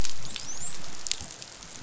{"label": "biophony, dolphin", "recorder": "SoundTrap 500"}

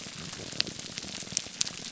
{"label": "biophony", "recorder": "SoundTrap 300"}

